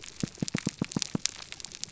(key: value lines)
label: biophony
recorder: SoundTrap 300